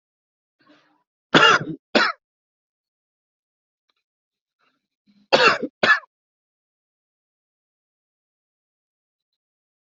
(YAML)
expert_labels:
- quality: good
  cough_type: dry
  dyspnea: false
  wheezing: false
  stridor: false
  choking: false
  congestion: false
  nothing: true
  diagnosis: upper respiratory tract infection
  severity: mild